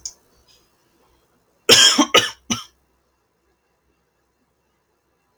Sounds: Cough